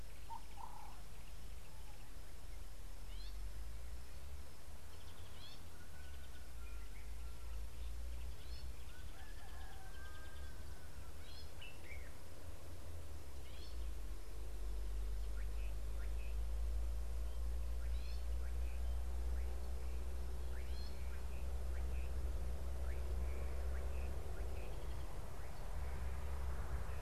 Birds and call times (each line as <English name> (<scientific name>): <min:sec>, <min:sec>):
Gray-backed Camaroptera (Camaroptera brevicaudata): 0:03.2, 0:11.4, 0:18.2
Common Bulbul (Pycnonotus barbatus): 0:11.7
Slate-colored Boubou (Laniarius funebris): 0:16.1